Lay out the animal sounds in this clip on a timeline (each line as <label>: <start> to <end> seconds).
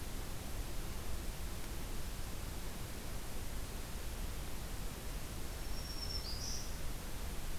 Black-throated Green Warbler (Setophaga virens): 5.4 to 6.9 seconds